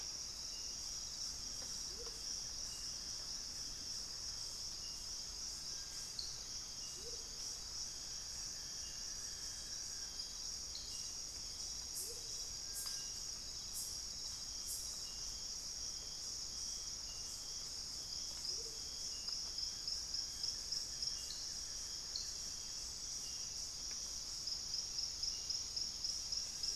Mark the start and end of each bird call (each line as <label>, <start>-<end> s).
Buff-throated Woodcreeper (Xiphorhynchus guttatus), 1.1-10.6 s
Amazonian Motmot (Momotus momota), 1.9-7.4 s
Thrush-like Wren (Campylorhynchus turdinus), 4.9-8.2 s
Amazonian Motmot (Momotus momota), 11.9-12.5 s
Amazonian Motmot (Momotus momota), 18.5-18.9 s
Buff-throated Woodcreeper (Xiphorhynchus guttatus), 19.0-22.8 s